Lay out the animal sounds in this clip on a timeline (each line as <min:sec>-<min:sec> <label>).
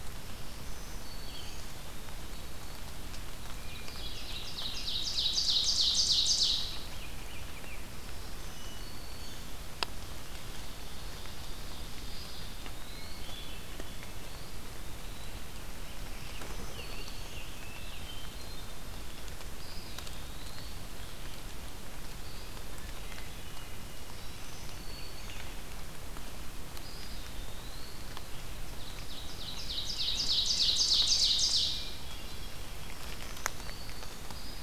0:00.0-0:01.8 Black-throated Green Warbler (Setophaga virens)
0:00.0-0:34.6 Red-eyed Vireo (Vireo olivaceus)
0:03.4-0:04.7 Hermit Thrush (Catharus guttatus)
0:03.6-0:07.0 Ovenbird (Seiurus aurocapilla)
0:07.8-0:09.5 Black-throated Green Warbler (Setophaga virens)
0:08.4-0:09.7 Hermit Thrush (Catharus guttatus)
0:10.2-0:12.6 Ovenbird (Seiurus aurocapilla)
0:11.9-0:13.4 Eastern Wood-Pewee (Contopus virens)
0:13.1-0:14.3 Hermit Thrush (Catharus guttatus)
0:14.2-0:15.5 Eastern Wood-Pewee (Contopus virens)
0:15.8-0:17.5 Black-throated Green Warbler (Setophaga virens)
0:16.1-0:18.3 Scarlet Tanager (Piranga olivacea)
0:16.6-0:19.3 Hermit Thrush (Catharus guttatus)
0:19.4-0:21.1 Eastern Wood-Pewee (Contopus virens)
0:22.5-0:24.1 Hermit Thrush (Catharus guttatus)
0:23.8-0:25.4 Black-throated Green Warbler (Setophaga virens)
0:26.3-0:28.3 Eastern Wood-Pewee (Contopus virens)
0:28.7-0:32.0 Ovenbird (Seiurus aurocapilla)
0:29.4-0:31.4 Scarlet Tanager (Piranga olivacea)
0:31.6-0:32.7 Hermit Thrush (Catharus guttatus)
0:32.8-0:34.3 Black-throated Green Warbler (Setophaga virens)